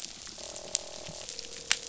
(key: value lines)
label: biophony, croak
recorder: SoundTrap 500